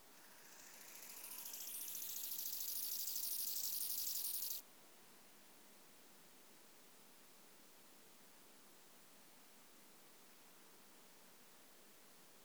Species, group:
Chorthippus biguttulus
Orthoptera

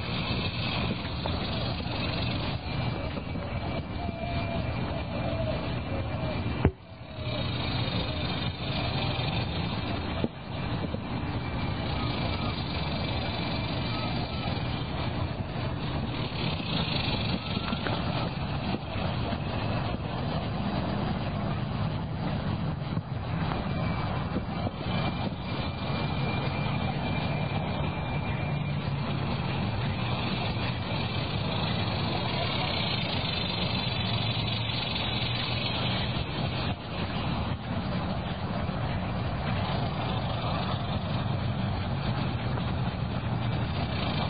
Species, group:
Quesada gigas
Cicadidae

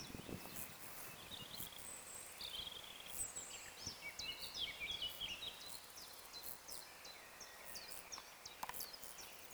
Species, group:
Chorthippus brunneus
Orthoptera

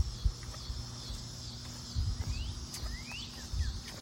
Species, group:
Neotibicen pruinosus
Cicadidae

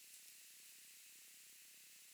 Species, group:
Leptophyes punctatissima
Orthoptera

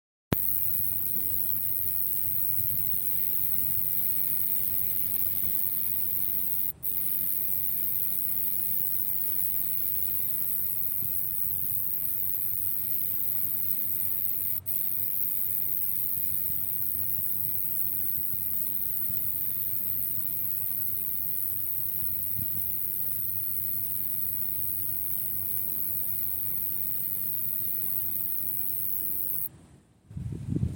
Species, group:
Roeseliana roeselii
Orthoptera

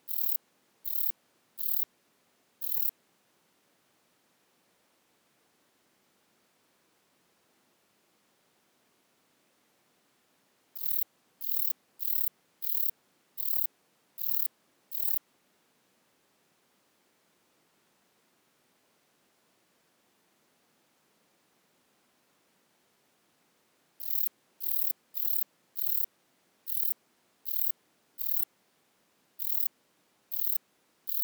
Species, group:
Rhacocleis buchichii
Orthoptera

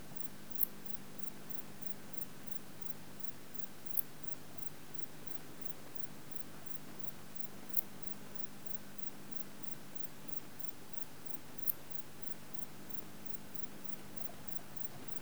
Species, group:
Metrioptera brachyptera
Orthoptera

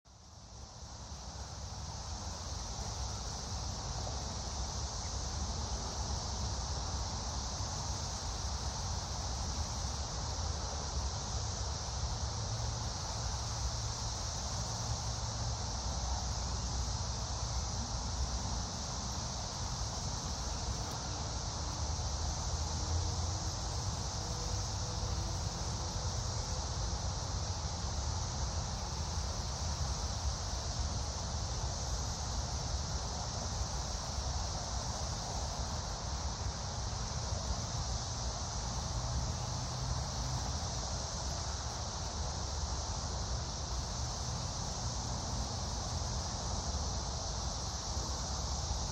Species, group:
Magicicada cassini
Cicadidae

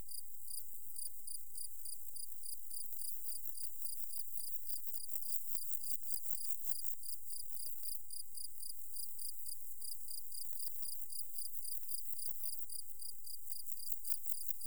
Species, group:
Pseudochorthippus parallelus
Orthoptera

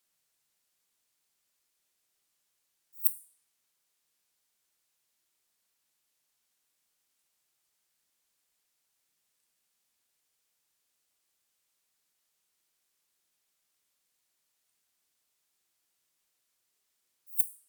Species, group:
Poecilimon affinis
Orthoptera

